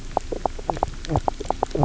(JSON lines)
{"label": "biophony, knock croak", "recorder": "SoundTrap 300"}